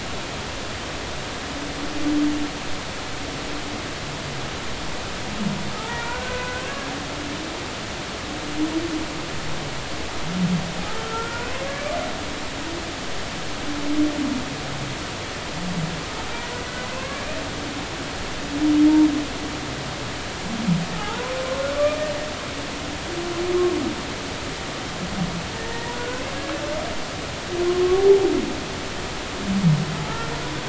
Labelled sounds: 5.8	6.7	humpback whale, 0.86 to 2.5 kHz
11.0	11.5	humpback whale, 1.3 to 1.5 kHz
16.9	17.3	humpback whale, 0.99 to 1.7 kHz
20.9	21.3	humpback whale, 0.80 to 1.1 kHz
25.6	26.2	humpback whale, 1.4 to 1.9 kHz
27.7	28.2	humpback whale, 0.80 to 1.2 kHz

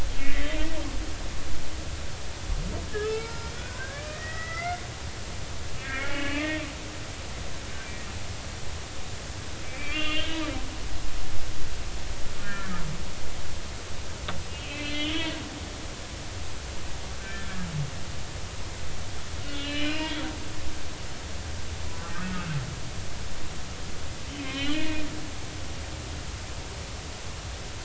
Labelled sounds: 0.2	0.5	humpback whale, 1.9 to 2.3 kHz
2.9	4.8	humpback whale, 0.83 to 5.6 kHz
5.8	6.6	humpback whale, 1.1 to 2.8 kHz
9.6	10.5	humpback whale, 2.3 to 3.9 kHz
10.9	11.2	humpback whale, 1.2 to 1.3 kHz
12.4	12.8	humpback whale, 1.3 to 1.9 kHz
14.5	15.3	humpback whale, 2.0 to 4.2 kHz
17.2	17.5	humpback whale, 1.5 to 1.8 kHz
19.4	20.1	humpback whale, 1.3 to 4.1 kHz
22.2	22.5	humpback whale, 1.3 to 1.5 kHz
24.4	25.0	humpback whale, 1.8 to 3.1 kHz

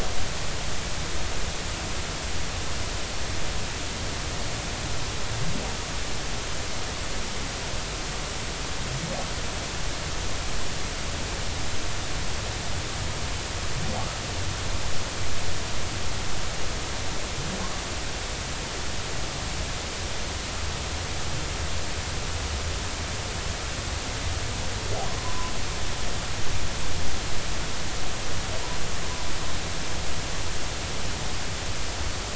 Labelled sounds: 25.2	25.5	humpback whale, 0.96 to 1.1 kHz

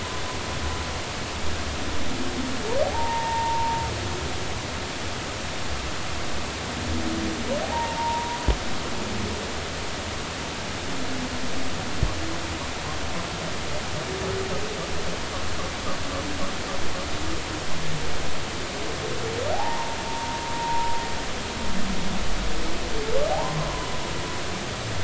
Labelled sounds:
2.9	3.8	humpback whale, 0.80 to 1.9 kHz
7.6	8.4	humpback whale, 0.80 to 1.0 kHz
19.5	21.0	humpback whale, 0.80 to 1.1 kHz
23.3	23.6	humpback whale, 0.80 to 1.1 kHz

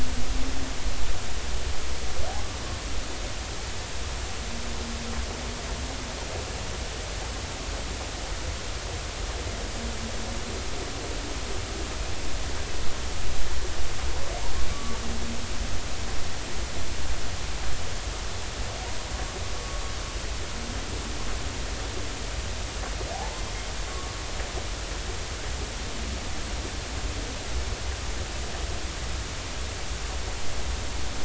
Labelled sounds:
14.7	15.0	humpback whale, 1.1 to 1.2 kHz
23.1	24.1	humpback whale, 0.80 to 1.2 kHz

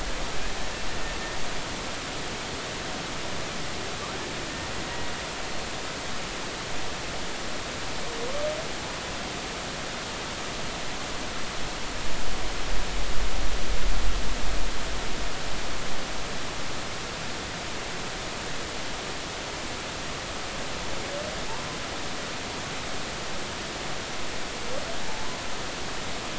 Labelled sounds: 25.0	25.3	humpback whale, 0.83 to 0.96 kHz

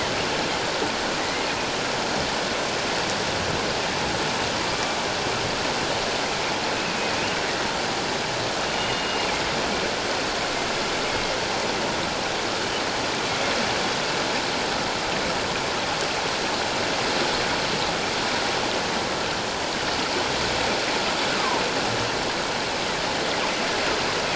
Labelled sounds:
1.2	1.5	killer whale, northern resident, G clan, 1.9 to 2.2 kHz
4.7	4.9	killer whale, northern resident, G clan, 1.1 to 1.2 kHz
8.7	9.3	killer whale, northern resident, G clan, 2.8 to 3.7 kHz

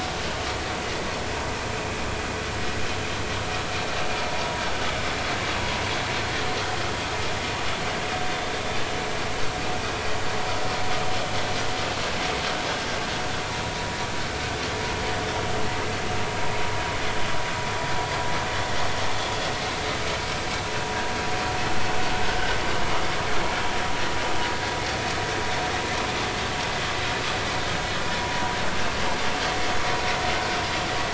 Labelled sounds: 4.3	4.6	vessel noise, 0.83 to 0.99 kHz

